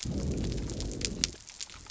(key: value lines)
label: biophony
recorder: SoundTrap 300